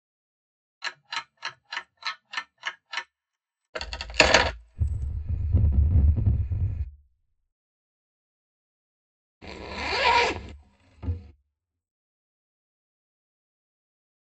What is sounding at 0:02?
clock